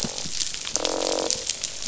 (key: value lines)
label: biophony, croak
recorder: SoundTrap 500